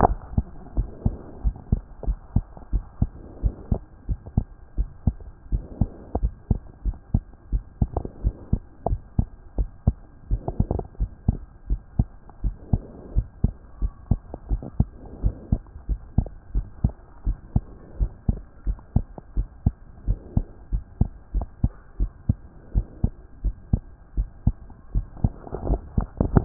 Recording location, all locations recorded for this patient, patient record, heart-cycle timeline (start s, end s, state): pulmonary valve (PV)
aortic valve (AV)+pulmonary valve (PV)+tricuspid valve (TV)+mitral valve (MV)
#Age: Child
#Sex: Male
#Height: 117.0 cm
#Weight: 21.7 kg
#Pregnancy status: False
#Murmur: Absent
#Murmur locations: nan
#Most audible location: nan
#Systolic murmur timing: nan
#Systolic murmur shape: nan
#Systolic murmur grading: nan
#Systolic murmur pitch: nan
#Systolic murmur quality: nan
#Diastolic murmur timing: nan
#Diastolic murmur shape: nan
#Diastolic murmur grading: nan
#Diastolic murmur pitch: nan
#Diastolic murmur quality: nan
#Outcome: Normal
#Campaign: 2014 screening campaign
0.00	0.58	unannotated
0.58	0.76	diastole
0.76	0.88	S1
0.88	1.04	systole
1.04	1.16	S2
1.16	1.44	diastole
1.44	1.56	S1
1.56	1.70	systole
1.70	1.82	S2
1.82	2.06	diastole
2.06	2.18	S1
2.18	2.34	systole
2.34	2.44	S2
2.44	2.72	diastole
2.72	2.84	S1
2.84	3.00	systole
3.00	3.10	S2
3.10	3.42	diastole
3.42	3.54	S1
3.54	3.70	systole
3.70	3.80	S2
3.80	4.08	diastole
4.08	4.20	S1
4.20	4.36	systole
4.36	4.46	S2
4.46	4.78	diastole
4.78	4.88	S1
4.88	5.06	systole
5.06	5.16	S2
5.16	5.52	diastole
5.52	5.64	S1
5.64	5.80	systole
5.80	5.90	S2
5.90	6.20	diastole
6.20	6.32	S1
6.32	6.50	systole
6.50	6.60	S2
6.60	6.84	diastole
6.84	6.96	S1
6.96	7.12	systole
7.12	7.22	S2
7.22	7.52	diastole
7.52	7.64	S1
7.64	7.80	systole
7.80	7.90	S2
7.90	8.24	diastole
8.24	8.34	S1
8.34	8.52	systole
8.52	8.60	S2
8.60	8.88	diastole
8.88	9.00	S1
9.00	9.18	systole
9.18	9.28	S2
9.28	9.58	diastole
9.58	9.68	S1
9.68	9.86	systole
9.86	9.96	S2
9.96	10.30	diastole
10.30	26.45	unannotated